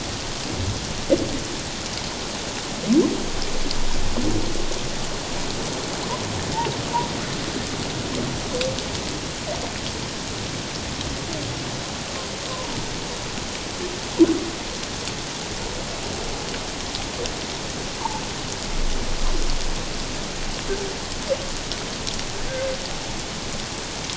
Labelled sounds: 12.5	12.8	humpback whale, 0.88 to 1.1 kHz

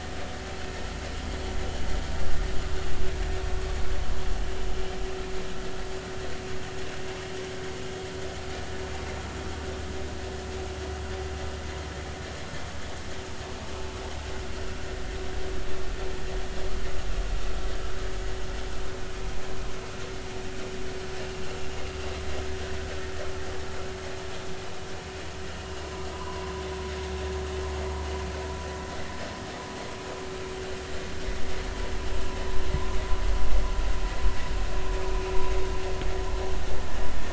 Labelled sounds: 26.1	26.6	vessel noise, 0.93 to 1.2 kHz

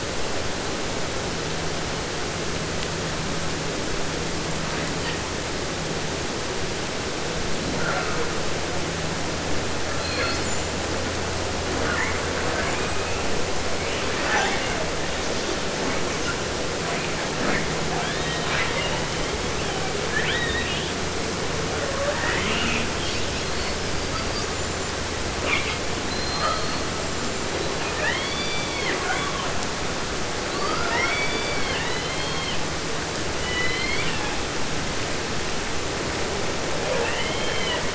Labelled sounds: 5.0	5.2	killer whale, 1.2 to 5.2 kHz
7.7	8.4	killer whale, 0.27 to 2.9 kHz
9.9	10.8	killer whale, southern resident, J pod, call S42, 0.14 to 8.0 kHz
11.6	13.4	killer whale, 0.18 to 8.0 kHz
13.7	14.9	killer whale, southern resident, 0.24 to 7.8 kHz
15.8	16.4	killer whale, 0.43 to 8.0 kHz
16.8	17.7	killer whale, 0.45 to 4.0 kHz
17.9	20.0	killer whale, southern resident, 0.50 to 5.2 kHz
20.1	21.0	killer whale, southern resident, J pod, call S02i, 0.50 to 4.3 kHz
21.6	25.0	killer whale, 0.35 to 8.0 kHz
25.4	25.8	killer whale, 0.23 to 5.5 kHz
26.0	26.9	killer whale, southern resident, J pod, call S32, 0.50 to 8.0 kHz
26.9	29.6	killer whale, southern resident, 0.19 to 8.0 kHz
30.3	32.7	killer whale, southern resident, 0.50 to 6.0 kHz
33.3	34.5	killer whale, southern resident, J pod, call S01, 0.50 to 5.8 kHz
36.9	37.9	killer whale, southern resident, J pod, call S44, 0.50 to 5.6 kHz

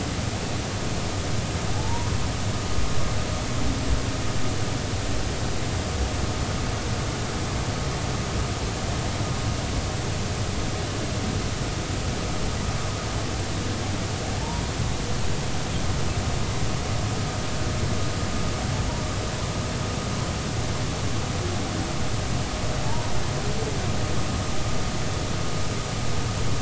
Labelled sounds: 1.8	2.1	humpback whale, 0.80 to 1.1 kHz
22.8	23.1	humpback whale, 0.83 to 0.99 kHz

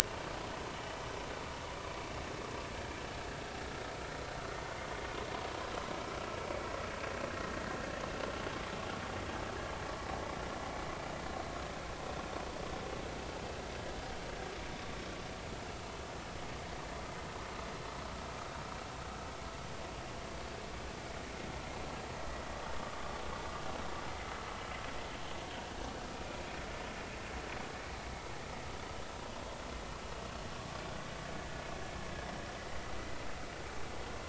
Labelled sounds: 26.1	26.4	vessel noise, 2.4 to 2.5 kHz

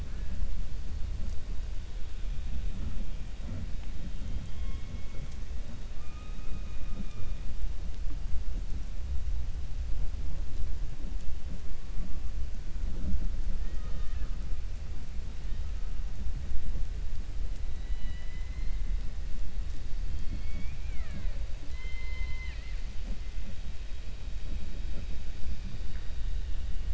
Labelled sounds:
4.1	5.3	killer whale, 0.45 to 3.4 kHz
13.5	14.4	killer whale, 0.44 to 4.3 kHz
17.7	18.5	killer whale, 1.9 to 4.9 kHz
21.6	22.8	killer whale, 1.0 to 4.9 kHz

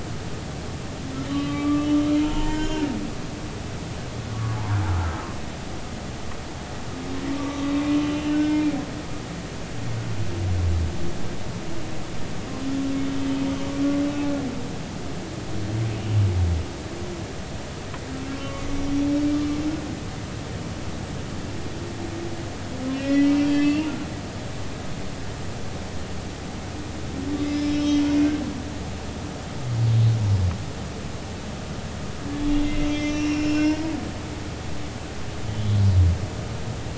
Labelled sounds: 1.3	2.9	humpback whale, 0.86 to 5.4 kHz
3.6	3.8	humpback whale, 2.7 to 2.9 kHz
7.4	8.7	humpback whale, 1.1 to 2.8 kHz
18.4	19.1	humpback whale, 1.0 to 5.7 kHz
22.9	23.9	humpback whale, 1.9 to 4.8 kHz
27.4	27.7	humpback whale, 4.9 to 5.3 kHz
32.6	33.8	humpback whale, 1.5 to 5.8 kHz

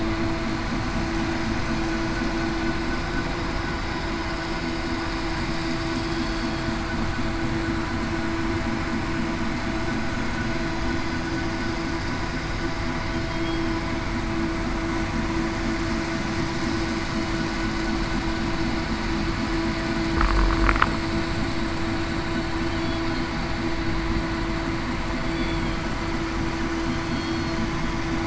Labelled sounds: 13.3	13.7	killer whale, southern resident, 3.2 to 3.3 kHz
26.8	27.6	killer whale, southern resident, 4.1 to 4.4 kHz

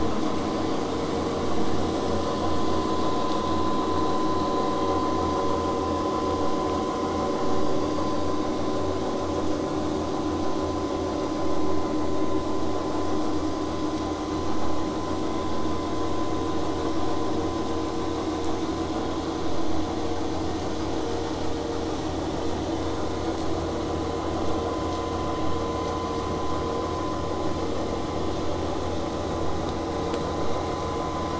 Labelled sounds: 26.4	31.3	vessel noise, 0 to 8.0 kHz

